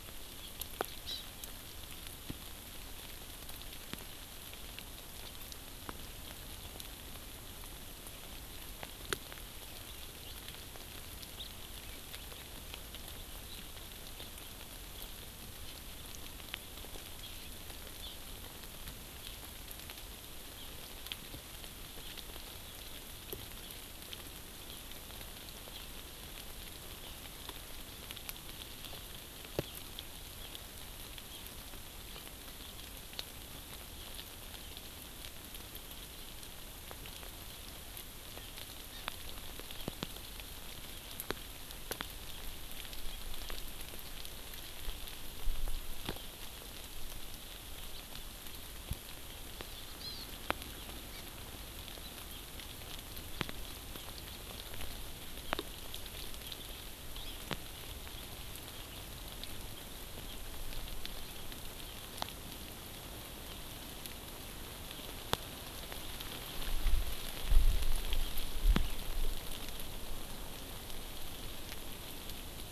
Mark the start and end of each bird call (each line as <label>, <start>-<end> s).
Hawaii Amakihi (Chlorodrepanis virens), 1.1-1.3 s
House Finch (Haemorhous mexicanus), 11.4-11.5 s
Hawaii Amakihi (Chlorodrepanis virens), 18.0-18.2 s
Hawaii Amakihi (Chlorodrepanis virens), 38.9-39.1 s
Hawaii Amakihi (Chlorodrepanis virens), 49.6-50.3 s
Hawaii Amakihi (Chlorodrepanis virens), 51.2-51.3 s
Hawaii Amakihi (Chlorodrepanis virens), 57.2-57.4 s